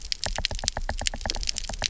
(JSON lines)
{"label": "biophony, knock", "recorder": "SoundTrap 300"}